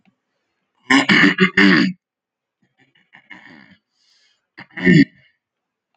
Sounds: Throat clearing